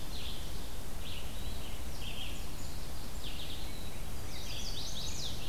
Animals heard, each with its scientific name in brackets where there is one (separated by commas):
Chestnut-sided Warbler (Setophaga pensylvanica), Red-eyed Vireo (Vireo olivaceus)